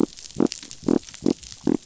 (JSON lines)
{"label": "biophony", "recorder": "SoundTrap 500"}